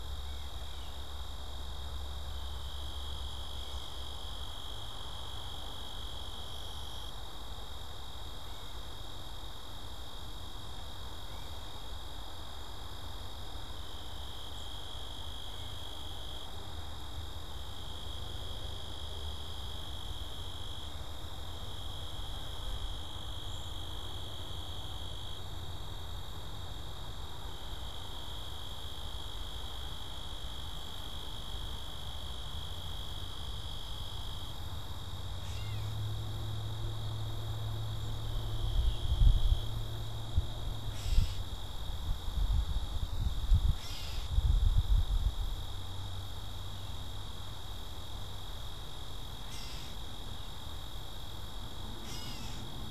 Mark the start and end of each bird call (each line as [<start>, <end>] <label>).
[23.46, 23.86] Cedar Waxwing (Bombycilla cedrorum)
[35.16, 52.91] Gray Catbird (Dumetella carolinensis)